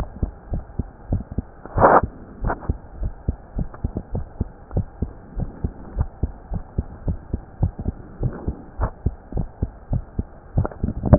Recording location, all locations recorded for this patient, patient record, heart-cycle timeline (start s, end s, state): mitral valve (MV)
aortic valve (AV)+pulmonary valve (PV)+tricuspid valve (TV)+mitral valve (MV)
#Age: Adolescent
#Sex: Male
#Height: nan
#Weight: nan
#Pregnancy status: False
#Murmur: Absent
#Murmur locations: nan
#Most audible location: nan
#Systolic murmur timing: nan
#Systolic murmur shape: nan
#Systolic murmur grading: nan
#Systolic murmur pitch: nan
#Systolic murmur quality: nan
#Diastolic murmur timing: nan
#Diastolic murmur shape: nan
#Diastolic murmur grading: nan
#Diastolic murmur pitch: nan
#Diastolic murmur quality: nan
#Outcome: Abnormal
#Campaign: 2015 screening campaign
0.00	0.05	unannotated
0.05	0.20	systole
0.20	0.32	S2
0.32	0.50	diastole
0.50	0.64	S1
0.64	0.76	systole
0.76	0.88	S2
0.88	1.08	diastole
1.08	1.22	S1
1.22	1.35	systole
1.35	1.50	S2
1.50	1.74	diastole
1.74	1.90	S1
1.90	2.01	systole
2.01	2.10	S2
2.10	2.39	diastole
2.39	2.56	S1
2.56	2.66	systole
2.66	2.78	S2
2.78	2.98	diastole
2.98	3.14	S1
3.14	3.24	systole
3.24	3.38	S2
3.38	3.52	diastole
3.52	3.70	S1
3.70	3.80	systole
3.80	3.94	S2
3.94	4.10	diastole
4.10	4.26	S1
4.26	4.36	systole
4.36	4.50	S2
4.50	4.72	diastole
4.72	4.86	S1
4.86	4.98	systole
4.98	5.12	S2
5.12	5.34	diastole
5.34	5.50	S1
5.50	5.62	systole
5.62	5.74	S2
5.74	5.94	diastole
5.94	6.08	S1
6.08	6.20	systole
6.20	6.34	S2
6.34	6.49	diastole
6.49	6.62	S1
6.62	6.74	systole
6.74	6.86	S2
6.86	7.04	diastole
7.04	7.20	S1
7.20	7.30	systole
7.30	7.44	S2
7.44	7.59	diastole
7.59	7.74	S1
7.74	7.85	systole
7.85	8.00	S2
8.00	8.18	diastole
8.18	8.34	S1
8.34	8.44	systole
8.44	8.58	S2
8.58	8.75	diastole
8.75	8.92	S1
8.92	9.04	systole
9.04	9.18	S2
9.18	9.31	diastole
9.31	9.50	S1
9.50	9.58	systole
9.58	9.72	S2
9.72	9.88	diastole
9.88	10.06	S1
10.06	10.16	systole
10.16	10.28	S2
10.28	10.42	diastole
10.42	11.18	unannotated